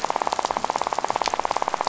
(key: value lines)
label: biophony, rattle
recorder: SoundTrap 500